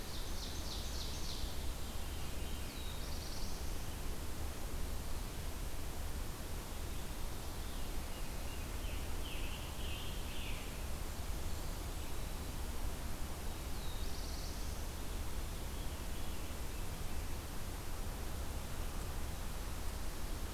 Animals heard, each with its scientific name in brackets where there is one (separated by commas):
Black-throated Blue Warbler (Setophaga caerulescens), Eastern Wood-Pewee (Contopus virens), Veery (Catharus fuscescens), Ovenbird (Seiurus aurocapilla), Scarlet Tanager (Piranga olivacea)